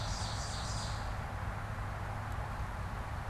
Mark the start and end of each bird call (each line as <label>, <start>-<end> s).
Ovenbird (Seiurus aurocapilla), 0.0-1.2 s